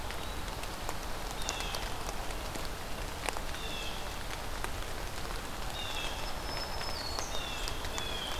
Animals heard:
Black-throated Green Warbler (Setophaga virens), Blue Jay (Cyanocitta cristata)

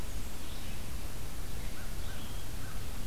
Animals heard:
Blackburnian Warbler (Setophaga fusca), Red-eyed Vireo (Vireo olivaceus), American Crow (Corvus brachyrhynchos)

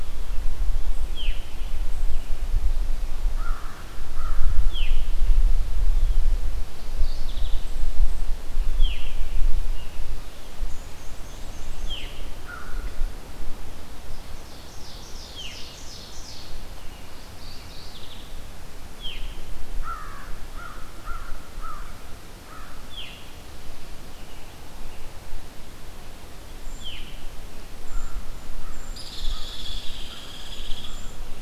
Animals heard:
Brown Creeper (Certhia americana), American Crow (Corvus brachyrhynchos), Veery (Catharus fuscescens), Ovenbird (Seiurus aurocapilla), Hairy Woodpecker (Dryobates villosus), Black-and-white Warbler (Mniotilta varia), Mourning Warbler (Geothlypis philadelphia), American Robin (Turdus migratorius)

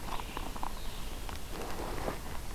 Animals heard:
Red-eyed Vireo (Vireo olivaceus)

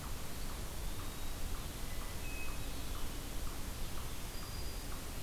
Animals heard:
Hermit Thrush (Catharus guttatus), Eastern Wood-Pewee (Contopus virens), Black-throated Green Warbler (Setophaga virens)

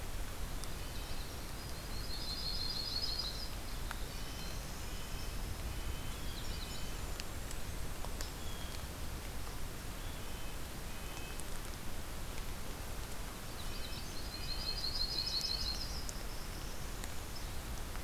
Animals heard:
Magnolia Warbler (Setophaga magnolia), Red-breasted Nuthatch (Sitta canadensis), Yellow-rumped Warbler (Setophaga coronata), Black-throated Blue Warbler (Setophaga caerulescens), Winter Wren (Troglodytes hiemalis), Golden-crowned Kinglet (Regulus satrapa), Blue Jay (Cyanocitta cristata)

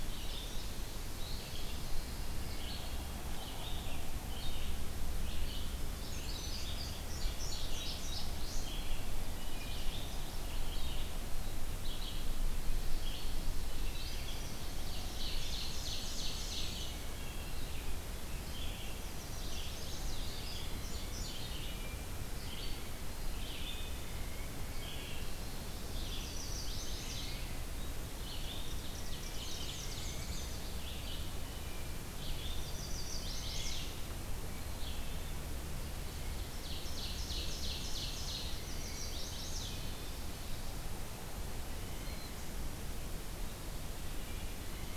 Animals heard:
Ovenbird (Seiurus aurocapilla), Chestnut-sided Warbler (Setophaga pensylvanica), Black-and-white Warbler (Mniotilta varia), Indigo Bunting (Passerina cyanea), Pine Warbler (Setophaga pinus), Wood Thrush (Hylocichla mustelina), Red-eyed Vireo (Vireo olivaceus)

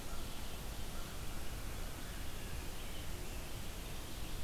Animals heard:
Red-eyed Vireo (Vireo olivaceus)

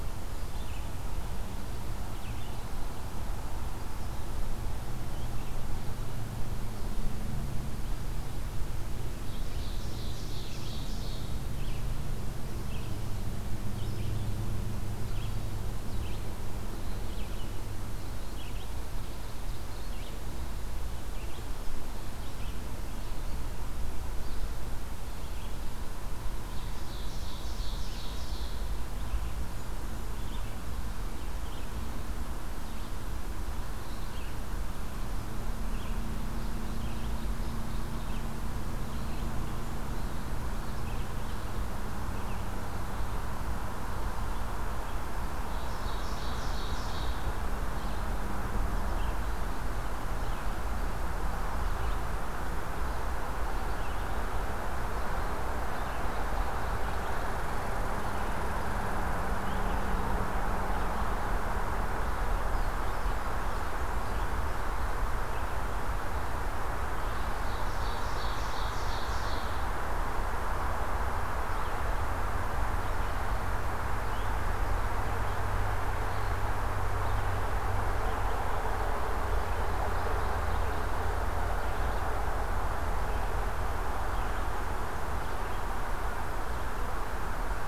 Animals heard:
Red-eyed Vireo (Vireo olivaceus), Red Squirrel (Tamiasciurus hudsonicus), Ovenbird (Seiurus aurocapilla)

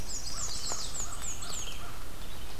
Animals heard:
Black-and-white Warbler (Mniotilta varia), Red-eyed Vireo (Vireo olivaceus), Chestnut-sided Warbler (Setophaga pensylvanica), American Crow (Corvus brachyrhynchos)

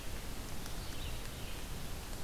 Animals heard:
Red-eyed Vireo (Vireo olivaceus)

